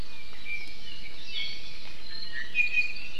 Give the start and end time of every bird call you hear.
[0.00, 3.19] Iiwi (Drepanis coccinea)

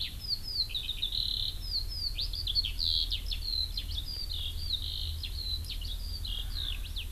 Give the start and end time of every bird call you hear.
[0.00, 7.11] Eurasian Skylark (Alauda arvensis)
[6.36, 7.11] Erckel's Francolin (Pternistis erckelii)

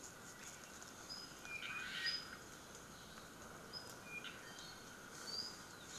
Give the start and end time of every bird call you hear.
[1.02, 2.52] Apapane (Himatione sanguinea)
[1.62, 2.32] Omao (Myadestes obscurus)
[3.62, 4.42] Apapane (Himatione sanguinea)
[4.32, 5.02] Iiwi (Drepanis coccinea)
[5.22, 5.72] Apapane (Himatione sanguinea)

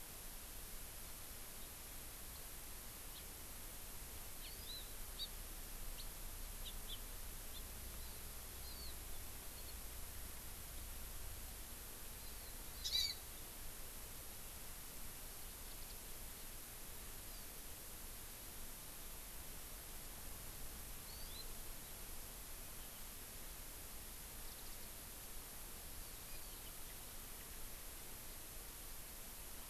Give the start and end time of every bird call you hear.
[4.42, 4.82] Hawaii Amakihi (Chlorodrepanis virens)
[5.12, 5.32] Hawaii Amakihi (Chlorodrepanis virens)
[6.62, 7.02] Hawaii Amakihi (Chlorodrepanis virens)
[7.52, 7.62] Hawaii Amakihi (Chlorodrepanis virens)
[7.92, 8.22] Hawaii Amakihi (Chlorodrepanis virens)
[8.62, 8.92] Hawaii Amakihi (Chlorodrepanis virens)
[12.12, 12.52] Hawaii Amakihi (Chlorodrepanis virens)
[12.82, 13.22] Hawaii Amakihi (Chlorodrepanis virens)
[17.22, 17.42] Hawaii Amakihi (Chlorodrepanis virens)
[21.02, 21.42] Hawaii Amakihi (Chlorodrepanis virens)
[24.42, 24.82] Warbling White-eye (Zosterops japonicus)

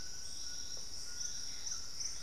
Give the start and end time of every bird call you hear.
[0.00, 2.23] White-throated Toucan (Ramphastos tucanus)
[1.35, 2.23] Gray Antbird (Cercomacra cinerascens)

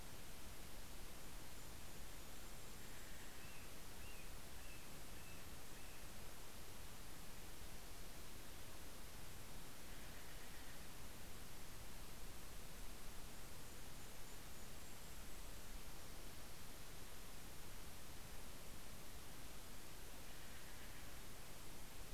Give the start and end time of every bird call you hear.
[0.00, 4.90] Golden-crowned Kinglet (Regulus satrapa)
[1.80, 6.80] Steller's Jay (Cyanocitta stelleri)
[9.30, 11.40] Steller's Jay (Cyanocitta stelleri)
[11.60, 16.20] Golden-crowned Kinglet (Regulus satrapa)
[19.70, 21.90] Steller's Jay (Cyanocitta stelleri)

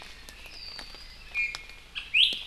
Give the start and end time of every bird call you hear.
[1.30, 2.40] Iiwi (Drepanis coccinea)

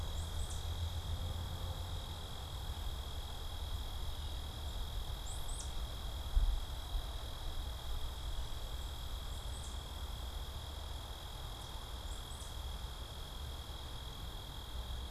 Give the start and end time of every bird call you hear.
[0.00, 0.90] Tufted Titmouse (Baeolophus bicolor)
[4.90, 12.90] Tufted Titmouse (Baeolophus bicolor)

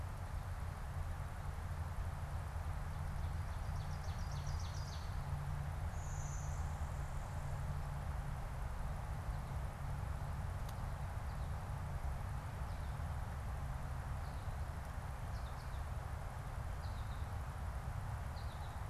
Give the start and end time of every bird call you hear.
[3.42, 5.52] Ovenbird (Seiurus aurocapilla)
[5.62, 7.72] Blue-winged Warbler (Vermivora cyanoptera)
[12.12, 18.82] American Goldfinch (Spinus tristis)

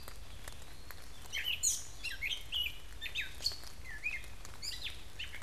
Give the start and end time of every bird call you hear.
[0.00, 1.20] Eastern Wood-Pewee (Contopus virens)
[0.00, 5.42] Red-eyed Vireo (Vireo olivaceus)
[1.00, 5.42] Gray Catbird (Dumetella carolinensis)

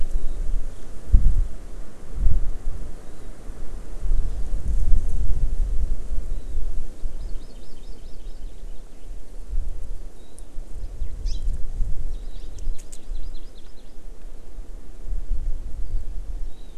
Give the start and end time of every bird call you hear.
[2.97, 3.27] Warbling White-eye (Zosterops japonicus)
[6.17, 6.57] Warbling White-eye (Zosterops japonicus)
[6.97, 8.37] Hawaii Amakihi (Chlorodrepanis virens)
[8.47, 9.27] Eurasian Skylark (Alauda arvensis)
[10.17, 10.47] Warbling White-eye (Zosterops japonicus)
[11.27, 11.47] Hawaii Amakihi (Chlorodrepanis virens)
[12.07, 12.37] Warbling White-eye (Zosterops japonicus)
[12.37, 13.97] Hawaii Amakihi (Chlorodrepanis virens)
[16.47, 16.77] Warbling White-eye (Zosterops japonicus)

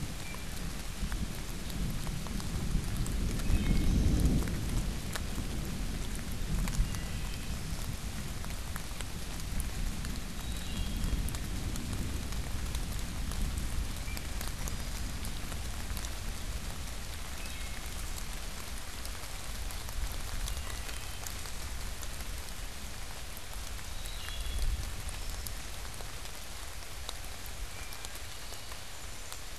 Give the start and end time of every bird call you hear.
[0.00, 0.90] Wood Thrush (Hylocichla mustelina)
[3.30, 4.50] Wood Thrush (Hylocichla mustelina)
[6.70, 8.00] Wood Thrush (Hylocichla mustelina)
[10.40, 11.40] Wood Thrush (Hylocichla mustelina)
[13.90, 15.30] Wood Thrush (Hylocichla mustelina)
[17.20, 18.20] Wood Thrush (Hylocichla mustelina)
[20.20, 21.50] Wood Thrush (Hylocichla mustelina)
[23.90, 25.60] Wood Thrush (Hylocichla mustelina)
[27.70, 29.50] Wood Thrush (Hylocichla mustelina)

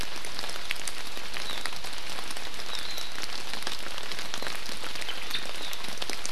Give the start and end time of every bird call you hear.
[1.41, 1.61] Warbling White-eye (Zosterops japonicus)
[2.71, 3.11] Warbling White-eye (Zosterops japonicus)
[5.01, 5.71] Omao (Myadestes obscurus)

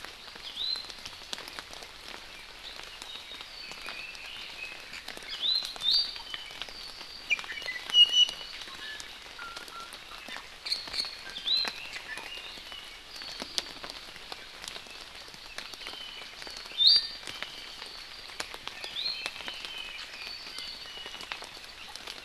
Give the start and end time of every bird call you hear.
[0.38, 0.88] Iiwi (Drepanis coccinea)
[2.98, 4.28] Apapane (Himatione sanguinea)
[5.28, 6.48] Iiwi (Drepanis coccinea)
[7.28, 8.98] Iiwi (Drepanis coccinea)
[9.38, 9.88] Iiwi (Drepanis coccinea)
[11.28, 11.78] Iiwi (Drepanis coccinea)
[14.88, 15.98] Hawaii Amakihi (Chlorodrepanis virens)
[16.68, 17.18] Iiwi (Drepanis coccinea)
[18.78, 19.38] Iiwi (Drepanis coccinea)
[19.38, 20.88] Apapane (Himatione sanguinea)
[20.48, 21.28] Iiwi (Drepanis coccinea)

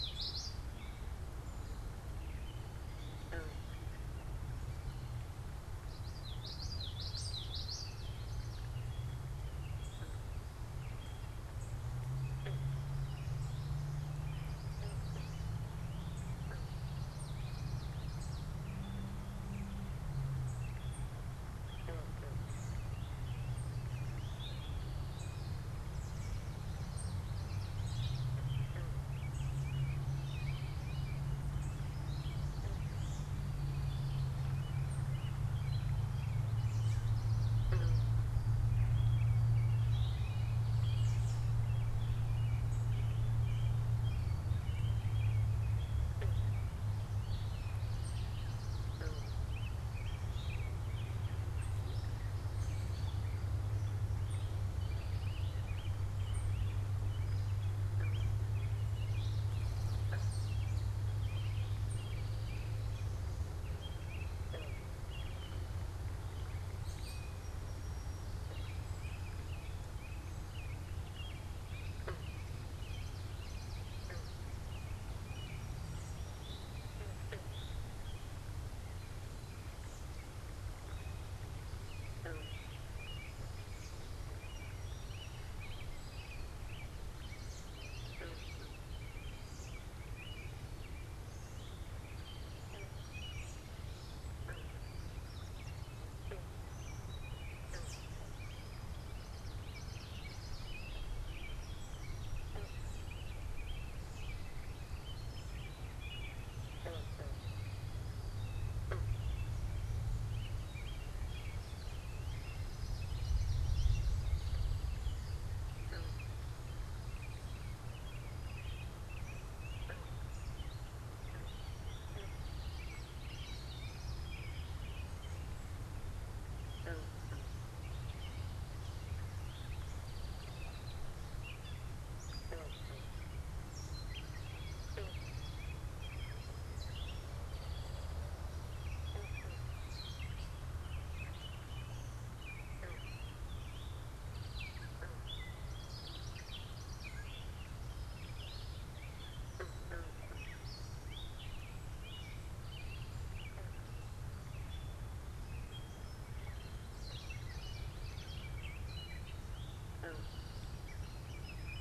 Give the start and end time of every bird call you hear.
[0.00, 0.95] Common Yellowthroat (Geothlypis trichas)
[0.00, 26.36] unidentified bird
[2.85, 4.05] American Robin (Turdus migratorius)
[5.55, 9.05] Common Yellowthroat (Geothlypis trichas)
[16.36, 18.66] Common Yellowthroat (Geothlypis trichas)
[24.25, 25.45] Eastern Towhee (Pipilo erythrophthalmus)
[26.45, 28.45] Common Yellowthroat (Geothlypis trichas)
[28.66, 95.95] American Robin (Turdus migratorius)
[36.35, 38.16] Common Yellowthroat (Geothlypis trichas)
[47.45, 49.55] Common Yellowthroat (Geothlypis trichas)
[58.76, 61.05] Common Yellowthroat (Geothlypis trichas)
[72.66, 74.56] Common Yellowthroat (Geothlypis trichas)
[76.36, 77.95] Eastern Towhee (Pipilo erythrophthalmus)
[87.06, 88.86] Common Yellowthroat (Geothlypis trichas)
[96.16, 154.85] unidentified bird
[98.86, 100.86] Common Yellowthroat (Geothlypis trichas)
[112.36, 114.36] Common Yellowthroat (Geothlypis trichas)
[113.75, 115.16] Eastern Towhee (Pipilo erythrophthalmus)
[121.86, 123.06] Eastern Towhee (Pipilo erythrophthalmus)
[122.66, 124.45] Common Yellowthroat (Geothlypis trichas)
[129.35, 130.75] Eastern Towhee (Pipilo erythrophthalmus)
[133.75, 135.66] Common Yellowthroat (Geothlypis trichas)
[136.85, 138.35] Eastern Towhee (Pipilo erythrophthalmus)
[143.46, 145.06] Eastern Towhee (Pipilo erythrophthalmus)
[145.56, 147.35] Common Yellowthroat (Geothlypis trichas)
[155.75, 161.80] American Robin (Turdus migratorius)
[156.75, 158.56] Common Yellowthroat (Geothlypis trichas)
[159.35, 160.96] Eastern Towhee (Pipilo erythrophthalmus)

